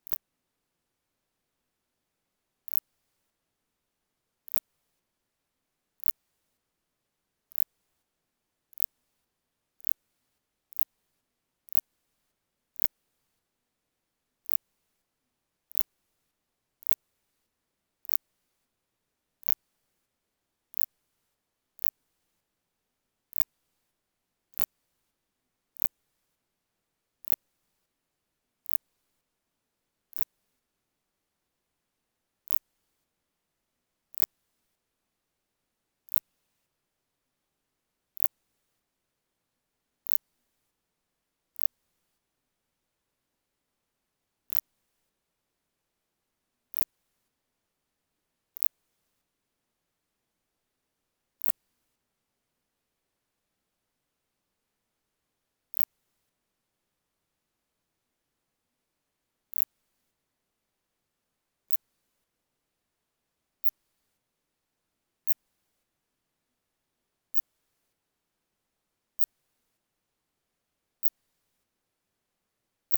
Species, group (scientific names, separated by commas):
Phaneroptera nana, Orthoptera